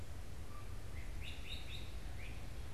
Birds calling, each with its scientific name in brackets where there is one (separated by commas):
Great Crested Flycatcher (Myiarchus crinitus)